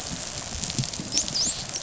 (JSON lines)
{"label": "biophony, dolphin", "recorder": "SoundTrap 500"}